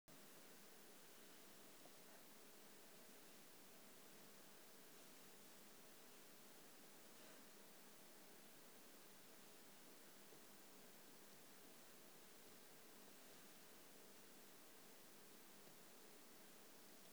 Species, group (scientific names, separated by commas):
Eupholidoptera schmidti, Orthoptera